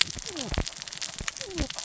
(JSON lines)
{"label": "biophony, cascading saw", "recorder": "SoundTrap 600 or HydroMoth"}